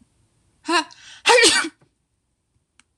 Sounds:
Sneeze